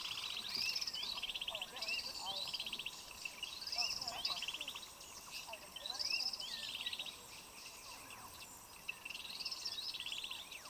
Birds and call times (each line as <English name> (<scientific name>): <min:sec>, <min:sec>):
Hunter's Cisticola (Cisticola hunteri): 0:01.5
African Emerald Cuckoo (Chrysococcyx cupreus): 0:06.5